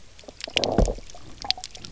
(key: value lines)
label: biophony, low growl
recorder: SoundTrap 300